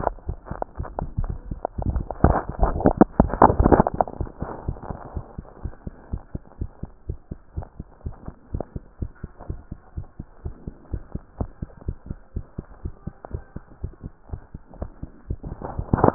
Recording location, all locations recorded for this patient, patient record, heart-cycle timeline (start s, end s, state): mitral valve (MV)
aortic valve (AV)+pulmonary valve (PV)+tricuspid valve (TV)+mitral valve (MV)
#Age: Child
#Sex: Female
#Height: 146.0 cm
#Weight: 35.1 kg
#Pregnancy status: False
#Murmur: Absent
#Murmur locations: nan
#Most audible location: nan
#Systolic murmur timing: nan
#Systolic murmur shape: nan
#Systolic murmur grading: nan
#Systolic murmur pitch: nan
#Systolic murmur quality: nan
#Diastolic murmur timing: nan
#Diastolic murmur shape: nan
#Diastolic murmur grading: nan
#Diastolic murmur pitch: nan
#Diastolic murmur quality: nan
#Outcome: Normal
#Campaign: 2015 screening campaign
0.00	5.94	unannotated
5.94	6.12	diastole
6.12	6.22	S1
6.22	6.33	systole
6.33	6.44	S2
6.44	6.59	diastole
6.59	6.70	S1
6.70	6.81	systole
6.81	6.90	S2
6.90	7.07	diastole
7.07	7.16	S1
7.16	7.30	systole
7.30	7.37	S2
7.37	7.55	diastole
7.55	7.66	S1
7.66	7.79	systole
7.79	7.85	S2
7.85	8.04	diastole
8.04	8.14	S1
8.14	8.26	systole
8.26	8.34	S2
8.34	8.52	diastole
8.52	8.61	S1
8.61	8.74	systole
8.74	8.82	S2
8.82	9.00	diastole
9.00	9.08	S1
9.08	9.22	systole
9.22	9.29	S2
9.29	9.48	diastole
9.48	9.56	S1
9.56	9.70	systole
9.70	9.76	S2
9.76	9.95	diastole
9.95	10.05	S1
10.05	10.18	systole
10.18	10.25	S2
10.25	10.44	diastole
10.44	10.51	S1
10.51	10.66	systole
10.66	10.72	S2
10.72	10.92	diastole
10.92	11.01	S1
11.01	11.13	systole
11.13	11.21	S2
11.21	11.38	diastole
11.38	11.47	S1
11.47	11.60	systole
11.60	11.68	S2
11.68	11.87	diastole
11.87	11.94	S1
11.94	12.08	systole
12.08	12.16	S2
12.16	12.34	diastole
12.34	12.46	S1
12.46	12.57	systole
12.57	12.66	S2
12.66	12.83	diastole
12.83	12.94	S1
12.94	13.05	systole
13.05	13.14	S2
13.14	13.30	diastole
13.30	13.44	S1
13.44	13.53	systole
13.53	13.60	S2
13.60	13.82	diastole
13.82	13.91	S1
13.91	14.03	systole
14.03	14.10	S2
14.10	14.31	diastole
14.31	14.40	S1
14.40	14.54	systole
14.54	14.59	S2
14.59	14.80	diastole
14.80	14.90	S1
14.90	15.02	systole
15.02	15.09	S2
15.09	15.28	diastole
15.28	16.14	unannotated